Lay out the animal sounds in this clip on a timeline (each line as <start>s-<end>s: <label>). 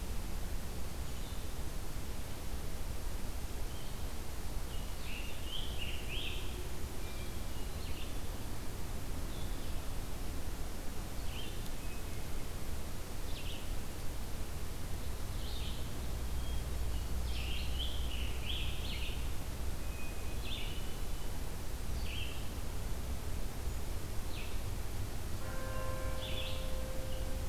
0.0s-27.5s: Red-eyed Vireo (Vireo olivaceus)
4.9s-6.6s: Scarlet Tanager (Piranga olivacea)
6.8s-8.1s: Hermit Thrush (Catharus guttatus)
16.1s-17.3s: Hermit Thrush (Catharus guttatus)
17.2s-19.4s: Scarlet Tanager (Piranga olivacea)
19.7s-21.0s: Hermit Thrush (Catharus guttatus)